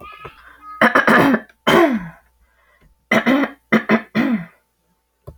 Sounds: Throat clearing